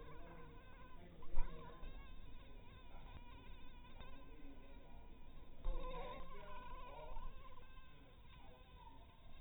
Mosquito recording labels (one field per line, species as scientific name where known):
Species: mosquito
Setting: cup